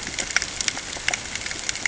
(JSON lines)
{"label": "ambient", "recorder": "HydroMoth"}